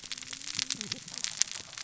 {"label": "biophony, cascading saw", "recorder": "SoundTrap 600 or HydroMoth"}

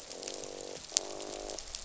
{"label": "biophony, croak", "recorder": "SoundTrap 500"}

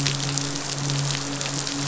{"label": "biophony, midshipman", "recorder": "SoundTrap 500"}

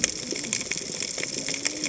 {"label": "biophony, cascading saw", "recorder": "HydroMoth"}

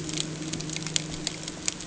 {"label": "anthrophony, boat engine", "recorder": "HydroMoth"}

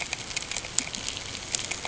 {"label": "ambient", "recorder": "HydroMoth"}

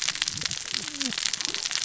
{"label": "biophony, cascading saw", "recorder": "SoundTrap 600 or HydroMoth"}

